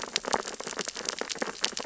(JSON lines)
{"label": "biophony, sea urchins (Echinidae)", "recorder": "SoundTrap 600 or HydroMoth"}